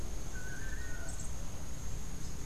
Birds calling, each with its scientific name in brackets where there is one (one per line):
Yellow-faced Grassquit (Tiaris olivaceus)
Long-tailed Manakin (Chiroxiphia linearis)